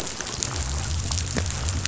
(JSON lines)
{"label": "biophony", "recorder": "SoundTrap 500"}